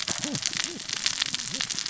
{"label": "biophony, cascading saw", "recorder": "SoundTrap 600 or HydroMoth"}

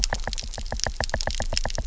{"label": "biophony, knock", "recorder": "SoundTrap 300"}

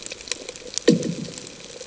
{"label": "anthrophony, bomb", "recorder": "HydroMoth"}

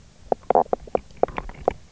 {"label": "biophony, knock croak", "recorder": "SoundTrap 300"}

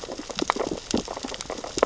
{"label": "biophony, sea urchins (Echinidae)", "recorder": "SoundTrap 600 or HydroMoth"}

